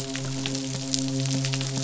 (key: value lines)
label: biophony, midshipman
recorder: SoundTrap 500